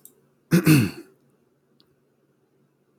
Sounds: Throat clearing